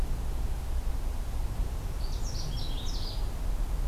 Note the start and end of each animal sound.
1.9s-3.5s: Canada Warbler (Cardellina canadensis)

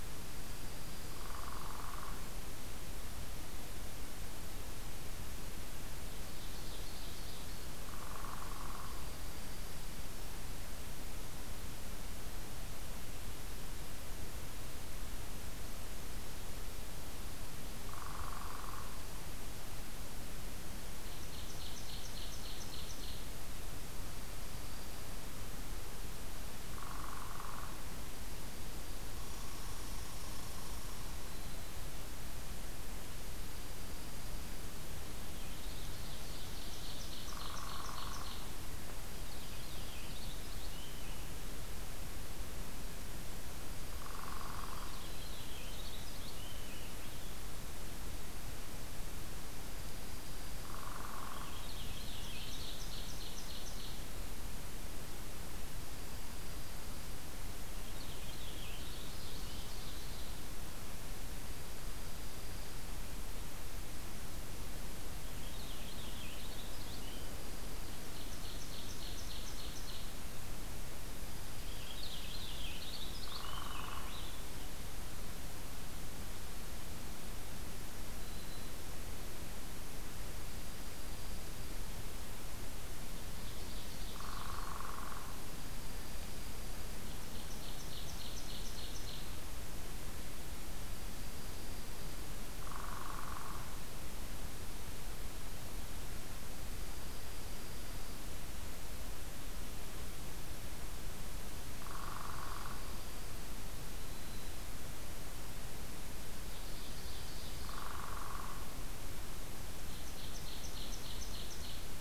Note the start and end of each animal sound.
0.1s-1.8s: Dark-eyed Junco (Junco hyemalis)
1.1s-2.2s: Northern Flicker (Colaptes auratus)
6.0s-7.7s: Ovenbird (Seiurus aurocapilla)
7.8s-9.0s: Northern Flicker (Colaptes auratus)
8.3s-10.0s: Dark-eyed Junco (Junco hyemalis)
17.8s-19.0s: Northern Flicker (Colaptes auratus)
18.0s-19.1s: Dark-eyed Junco (Junco hyemalis)
20.8s-23.2s: Ovenbird (Seiurus aurocapilla)
23.8s-25.2s: Dark-eyed Junco (Junco hyemalis)
26.7s-27.8s: Northern Flicker (Colaptes auratus)
28.1s-29.3s: Dark-eyed Junco (Junco hyemalis)
29.1s-31.1s: Red Squirrel (Tamiasciurus hudsonicus)
30.9s-32.0s: Black-throated Green Warbler (Setophaga virens)
33.4s-34.7s: Dark-eyed Junco (Junco hyemalis)
35.2s-36.0s: Purple Finch (Haemorhous purpureus)
35.4s-38.5s: Ovenbird (Seiurus aurocapilla)
37.2s-38.3s: Northern Flicker (Colaptes auratus)
38.9s-40.1s: Dark-eyed Junco (Junco hyemalis)
39.1s-41.3s: Purple Finch (Haemorhous purpureus)
43.7s-45.0s: Dark-eyed Junco (Junco hyemalis)
43.9s-45.0s: Northern Flicker (Colaptes auratus)
44.6s-47.5s: Purple Finch (Haemorhous purpureus)
49.6s-50.8s: Dark-eyed Junco (Junco hyemalis)
50.6s-51.6s: Northern Flicker (Colaptes auratus)
51.1s-52.7s: Purple Finch (Haemorhous purpureus)
52.0s-54.0s: Ovenbird (Seiurus aurocapilla)
55.7s-57.1s: Dark-eyed Junco (Junco hyemalis)
57.7s-59.5s: Purple Finch (Haemorhous purpureus)
59.0s-60.3s: Ovenbird (Seiurus aurocapilla)
61.3s-62.9s: Dark-eyed Junco (Junco hyemalis)
65.1s-67.4s: Purple Finch (Haemorhous purpureus)
66.8s-68.2s: Dark-eyed Junco (Junco hyemalis)
67.7s-70.1s: Ovenbird (Seiurus aurocapilla)
71.1s-72.8s: Dark-eyed Junco (Junco hyemalis)
71.4s-74.6s: Purple Finch (Haemorhous purpureus)
73.2s-74.1s: Northern Flicker (Colaptes auratus)
78.1s-78.8s: Black-throated Green Warbler (Setophaga virens)
80.4s-81.8s: Dark-eyed Junco (Junco hyemalis)
83.1s-84.7s: Ovenbird (Seiurus aurocapilla)
84.1s-85.4s: Northern Flicker (Colaptes auratus)
85.2s-87.0s: Dark-eyed Junco (Junco hyemalis)
86.9s-89.3s: Ovenbird (Seiurus aurocapilla)
90.9s-92.3s: Dark-eyed Junco (Junco hyemalis)
92.6s-93.7s: Northern Flicker (Colaptes auratus)
96.8s-98.1s: Dark-eyed Junco (Junco hyemalis)
101.7s-103.2s: Dark-eyed Junco (Junco hyemalis)
101.8s-102.9s: Northern Flicker (Colaptes auratus)
103.7s-104.7s: Black-throated Green Warbler (Setophaga virens)
106.4s-107.8s: Ovenbird (Seiurus aurocapilla)
107.6s-108.7s: Northern Flicker (Colaptes auratus)
109.7s-111.9s: Ovenbird (Seiurus aurocapilla)

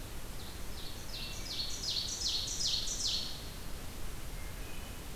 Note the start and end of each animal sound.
0.4s-3.8s: Ovenbird (Seiurus aurocapilla)
1.0s-2.0s: Wood Thrush (Hylocichla mustelina)
4.2s-5.2s: Wood Thrush (Hylocichla mustelina)

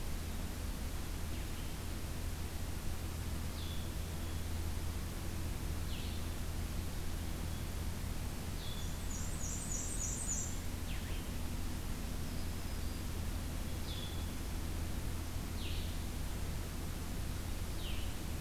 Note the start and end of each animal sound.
0.0s-18.4s: Blue-headed Vireo (Vireo solitarius)
8.8s-10.5s: Black-and-white Warbler (Mniotilta varia)
12.1s-13.1s: Black-throated Green Warbler (Setophaga virens)

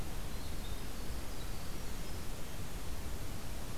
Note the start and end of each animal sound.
0.2s-3.1s: Winter Wren (Troglodytes hiemalis)

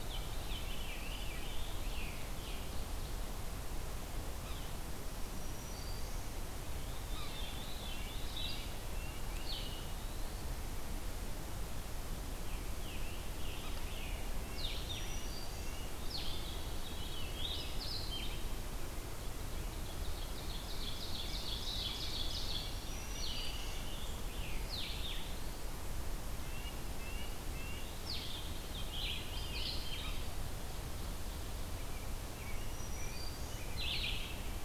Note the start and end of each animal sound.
0.0s-1.7s: Veery (Catharus fuscescens)
0.3s-2.8s: Scarlet Tanager (Piranga olivacea)
4.4s-4.7s: Yellow-bellied Sapsucker (Sphyrapicus varius)
5.2s-6.4s: Black-throated Green Warbler (Setophaga virens)
7.0s-8.6s: Veery (Catharus fuscescens)
7.0s-7.3s: Yellow-bellied Sapsucker (Sphyrapicus varius)
7.8s-9.3s: Red-breasted Nuthatch (Sitta canadensis)
8.3s-25.2s: Blue-headed Vireo (Vireo solitarius)
12.5s-14.3s: Scarlet Tanager (Piranga olivacea)
13.7s-15.9s: Red-breasted Nuthatch (Sitta canadensis)
14.6s-15.9s: Black-throated Green Warbler (Setophaga virens)
16.5s-17.6s: Veery (Catharus fuscescens)
19.5s-22.8s: Ovenbird (Seiurus aurocapilla)
21.6s-23.9s: Red-breasted Nuthatch (Sitta canadensis)
22.0s-24.7s: Scarlet Tanager (Piranga olivacea)
22.4s-23.8s: Black-throated Green Warbler (Setophaga virens)
26.3s-27.9s: Red-breasted Nuthatch (Sitta canadensis)
27.9s-34.6s: Red-eyed Vireo (Vireo olivaceus)
28.9s-30.2s: Veery (Catharus fuscescens)
32.5s-33.8s: Black-throated Green Warbler (Setophaga virens)

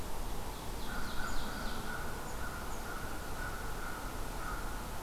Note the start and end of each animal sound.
0.0s-2.0s: Ovenbird (Seiurus aurocapilla)
0.8s-5.0s: American Crow (Corvus brachyrhynchos)

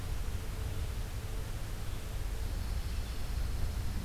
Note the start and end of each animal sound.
2.2s-4.0s: Pine Warbler (Setophaga pinus)

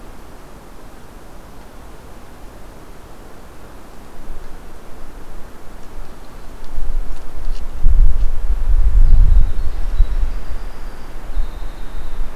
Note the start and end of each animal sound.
8.7s-12.4s: Winter Wren (Troglodytes hiemalis)

